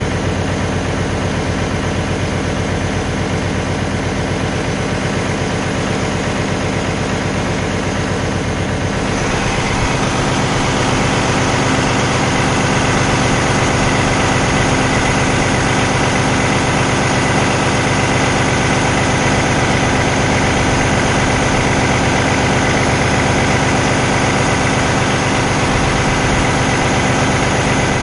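An engine is rumbling continuously. 0:00.0 - 0:09.1
An engine rumbles loudly and continuously. 0:09.2 - 0:28.0

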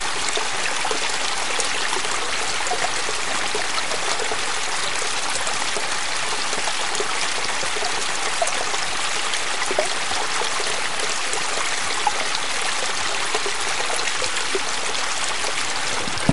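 Water pouring nearby. 0:00.0 - 0:16.3
Water streaming loudly. 0:00.0 - 0:16.3

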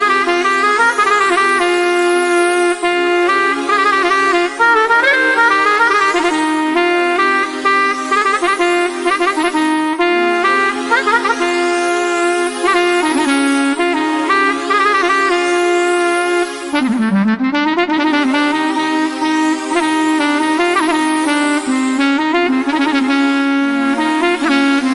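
A loud whistling sound fades and reappears repeatedly. 0:00.0 - 0:16.8
Synthesizers playing in the background at moderate volume. 0:00.0 - 0:16.8
Clarinet playing the main melody loudly. 0:00.0 - 0:24.9
A loud whistling sound fades and reappears repeatedly. 0:18.0 - 0:24.9
Synthesizers playing in the background at moderate volume. 0:18.0 - 0:24.9

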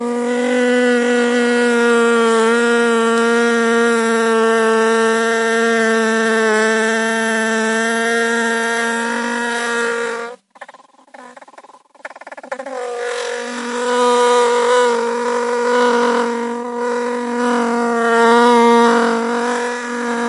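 A swarm of bees buzzing loudly in an otherwise quiet environment. 0:00.0 - 0:10.4
A bee splutters repeatedly with occasional breaks in a quiet environment. 0:10.5 - 0:12.7
A swarm of bees buzzing continuously with increasing loudness. 0:12.7 - 0:20.3

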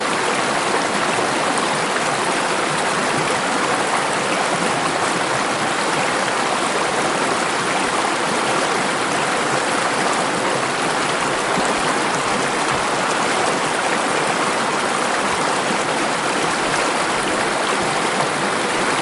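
Continuous flowing water. 0:00.0 - 0:19.0
Heavy rain drumming loudly and constantly. 0:00.0 - 0:19.0

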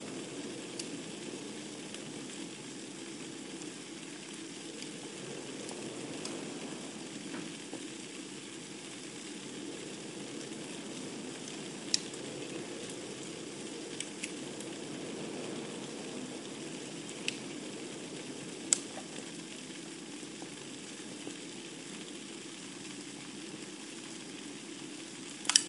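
Noise with a constant tone. 0:00.0 - 0:25.7

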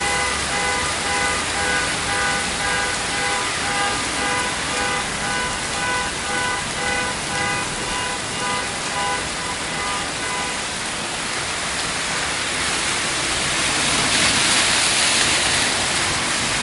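A car alarm sounds repeatedly in the distance. 0:00.0 - 0:10.6
Constant rainfall. 0:00.0 - 0:16.6
A car drives through a water puddle. 0:13.3 - 0:15.9

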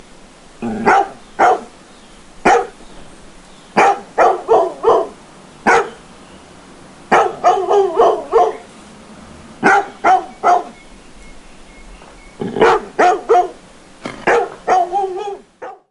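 A medium-sized dog barks repeatedly. 0:00.5 - 0:01.7
A medium-sized dog barks once. 0:02.3 - 0:02.8
A medium-sized dog barks repeatedly. 0:03.7 - 0:06.1
A medium-sized dog barks repeatedly. 0:07.0 - 0:08.7
A medium-sized dog barks repeatedly. 0:09.5 - 0:10.8
A medium-sized dog barks repeatedly. 0:12.3 - 0:15.5

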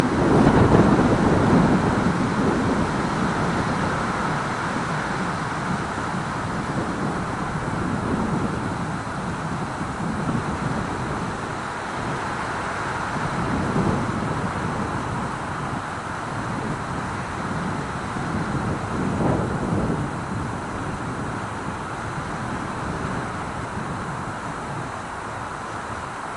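Wind rushing through leaves starting slightly louder and then maintaining a medium volume with small peaks. 0:00.0 - 0:26.4

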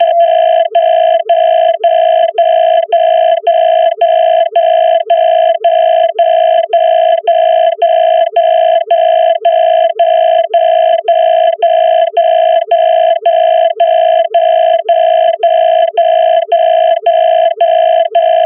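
Each alarm sound ends, followed by sounds resembling falling drops of water. 0:00.0 - 0:18.5
A sound indicating a call is rejected or the person is busy on an old phone. 0:00.0 - 0:18.5

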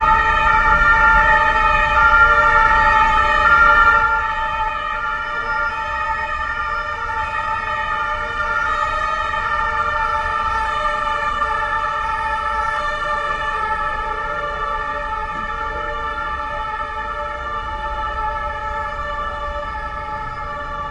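The loud, continuous siren of a passing police car. 0:00.0 - 0:20.9

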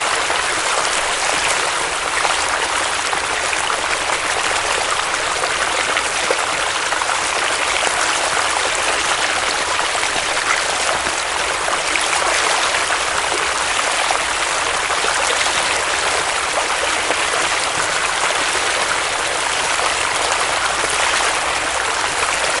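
Water running continuously and strongly in a stream. 0:00.0 - 0:22.6

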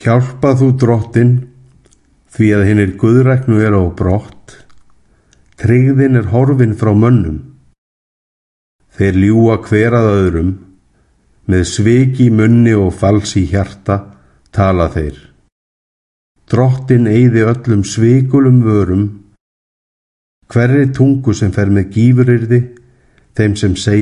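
A person is speaking indoors in Icelandic. 0:00.1 - 0:01.5
A person is speaking indoors in Icelandic. 0:02.3 - 0:04.7
A person is speaking Icelandic indoors with pauses between phrases. 0:05.6 - 0:07.5
A person is speaking Icelandic indoors with pauses between phrases. 0:08.9 - 0:10.7
A person is speaking Icelandic indoors with pauses between phrases. 0:11.5 - 0:15.3
A person is speaking Icelandic indoors with pauses between phrases. 0:16.5 - 0:19.2
A person is speaking Icelandic indoors with pauses between phrases. 0:20.5 - 0:24.0

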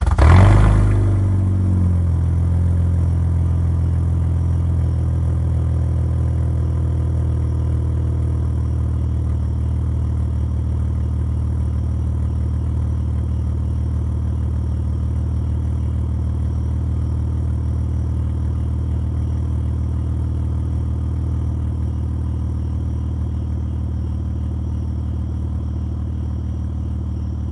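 The engine of a truck starts and runs continuously in a steady manner. 0:00.0 - 0:27.5

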